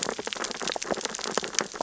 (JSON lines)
{"label": "biophony, sea urchins (Echinidae)", "recorder": "SoundTrap 600 or HydroMoth"}